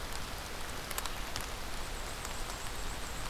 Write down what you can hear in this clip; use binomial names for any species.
Mniotilta varia